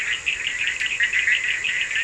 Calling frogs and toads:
Bischoff's tree frog (Boana bischoffi), Cochran's lime tree frog (Sphaenorhynchus surdus)
Atlantic Forest, Brazil, 4:30am

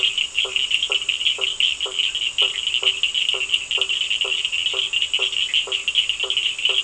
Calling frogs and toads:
blacksmith tree frog (Boana faber), Cochran's lime tree frog (Sphaenorhynchus surdus)
Atlantic Forest, Brazil, ~8pm

